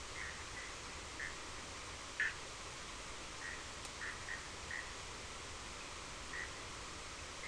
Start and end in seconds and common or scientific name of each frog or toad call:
0.1	1.4	Bischoff's tree frog
2.2	2.4	Bischoff's tree frog
3.3	4.9	Bischoff's tree frog